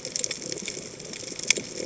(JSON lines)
{"label": "biophony", "recorder": "HydroMoth"}